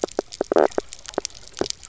{"label": "biophony, knock croak", "recorder": "SoundTrap 300"}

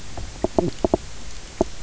{"label": "biophony, knock croak", "recorder": "SoundTrap 300"}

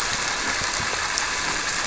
{"label": "anthrophony, boat engine", "recorder": "SoundTrap 300"}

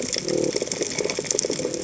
{"label": "biophony", "recorder": "HydroMoth"}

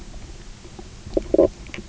{"label": "biophony, knock croak", "recorder": "SoundTrap 300"}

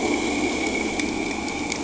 {"label": "anthrophony, boat engine", "recorder": "HydroMoth"}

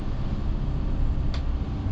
{"label": "anthrophony, boat engine", "recorder": "SoundTrap 300"}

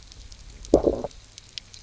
{"label": "biophony, low growl", "recorder": "SoundTrap 300"}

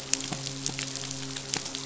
{"label": "biophony, midshipman", "recorder": "SoundTrap 500"}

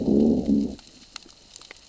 {"label": "biophony, growl", "recorder": "SoundTrap 600 or HydroMoth"}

